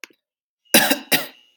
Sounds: Cough